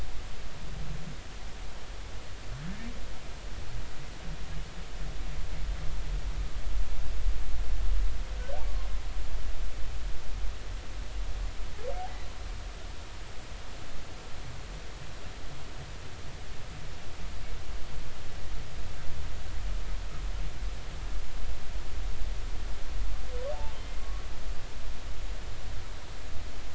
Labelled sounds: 24.0	24.2	humpback whale, 1.1 to 1.3 kHz

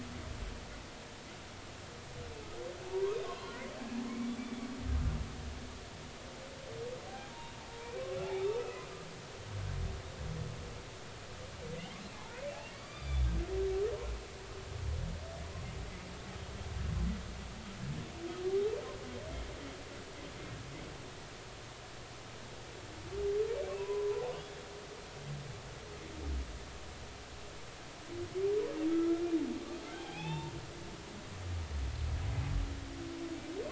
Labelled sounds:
2.9	3.6	humpback whale, 0.83 to 4.2 kHz
4.1	4.7	humpback whale, 2.1 to 2.5 kHz
7.1	7.3	humpback whale, 0.80 to 1.7 kHz
8.4	8.9	humpback whale, 2.4 to 2.7 kHz
12.1	13.3	humpback whale, 0.80 to 4.9 kHz
23.8	24.6	humpback whale, 0.83 to 3.5 kHz
28.9	29.2	humpback whale, 1.3 to 1.4 kHz
29.9	30.5	humpback whale, 0.80 to 3.7 kHz

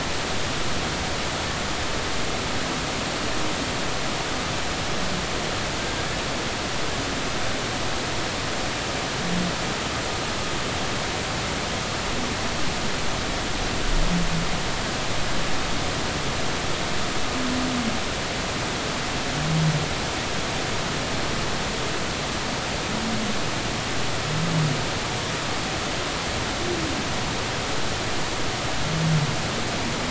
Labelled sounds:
5.8	6.2	humpback whale, 1.5 to 1.8 kHz

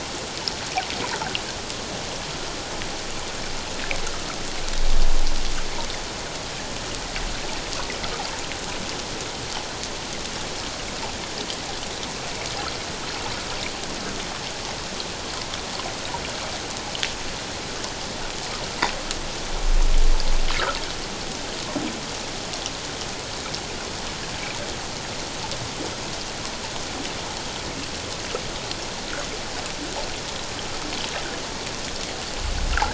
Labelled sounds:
20.5	20.8	water noise, 1.2 to 1.8 kHz

